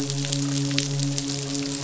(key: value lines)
label: biophony, midshipman
recorder: SoundTrap 500